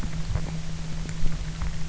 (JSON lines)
{"label": "anthrophony, boat engine", "recorder": "SoundTrap 300"}